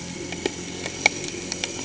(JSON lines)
{"label": "anthrophony, boat engine", "recorder": "HydroMoth"}